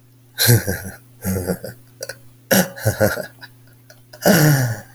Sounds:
Laughter